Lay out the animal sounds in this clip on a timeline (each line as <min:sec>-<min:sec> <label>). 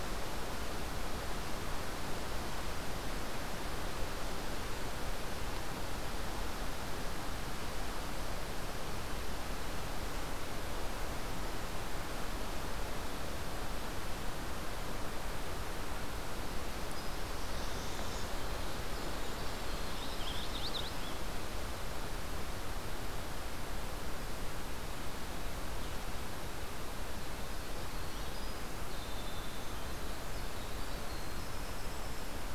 0:15.7-0:20.5 Winter Wren (Troglodytes hiemalis)
0:16.7-0:18.4 Northern Parula (Setophaga americana)
0:19.9-0:21.1 Magnolia Warbler (Setophaga magnolia)
0:27.4-0:32.5 Winter Wren (Troglodytes hiemalis)